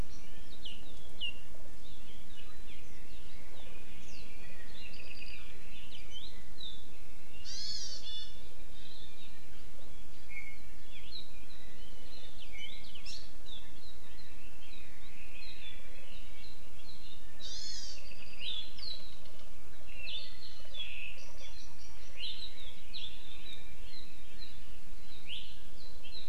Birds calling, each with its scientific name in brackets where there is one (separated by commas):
Hawaii Amakihi (Chlorodrepanis virens), Iiwi (Drepanis coccinea), Apapane (Himatione sanguinea)